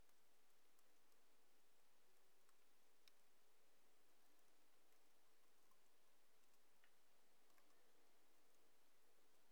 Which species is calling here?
Neocallicrania miegii